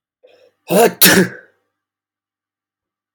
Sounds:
Sneeze